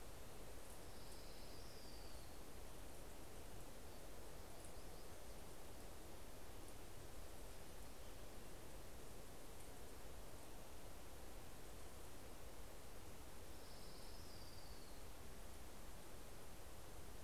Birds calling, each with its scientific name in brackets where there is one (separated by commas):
Yellow-rumped Warbler (Setophaga coronata), Orange-crowned Warbler (Leiothlypis celata)